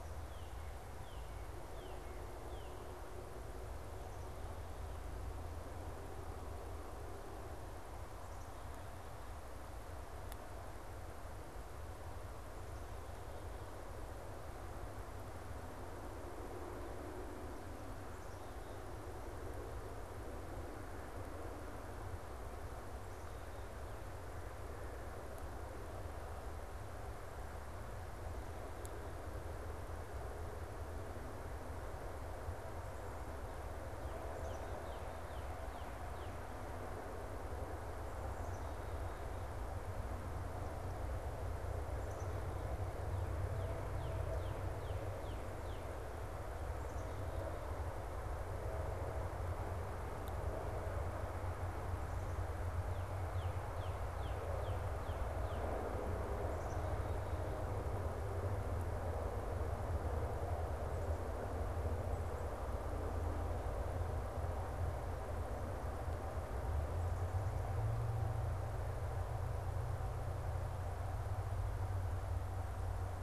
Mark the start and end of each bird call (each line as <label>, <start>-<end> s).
Northern Cardinal (Cardinalis cardinalis), 0.0-3.0 s
Northern Cardinal (Cardinalis cardinalis), 33.9-36.5 s
Black-capped Chickadee (Poecile atricapillus), 34.2-35.3 s
Black-capped Chickadee (Poecile atricapillus), 38.2-39.5 s
Black-capped Chickadee (Poecile atricapillus), 41.8-42.5 s
Northern Cardinal (Cardinalis cardinalis), 43.3-46.2 s
Northern Cardinal (Cardinalis cardinalis), 52.8-56.0 s
Black-capped Chickadee (Poecile atricapillus), 56.4-57.8 s